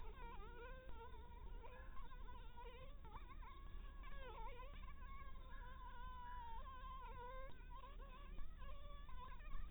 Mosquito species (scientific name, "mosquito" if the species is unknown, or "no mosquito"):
Anopheles dirus